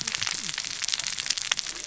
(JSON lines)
{"label": "biophony, cascading saw", "recorder": "SoundTrap 600 or HydroMoth"}